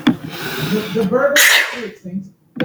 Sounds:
Sneeze